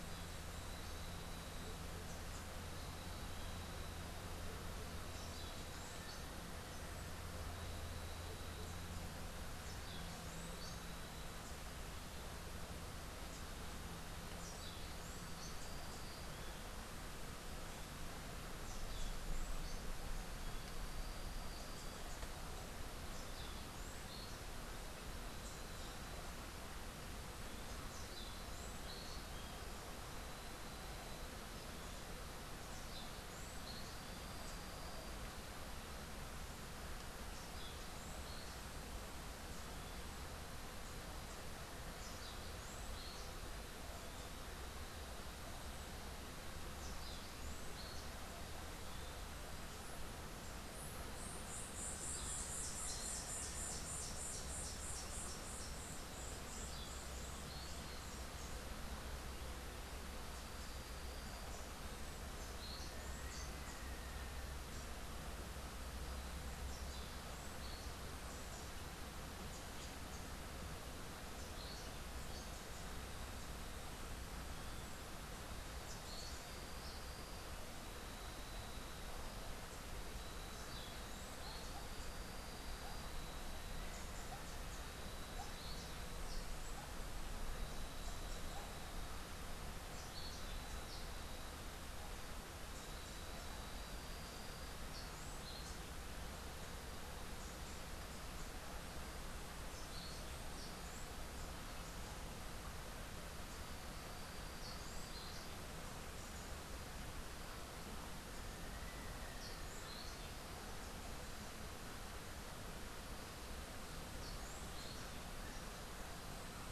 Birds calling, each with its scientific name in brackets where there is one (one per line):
White-eared Ground-Sparrow (Melozone leucotis)
Orange-billed Nightingale-Thrush (Catharus aurantiirostris)
Little Tinamou (Crypturellus soui)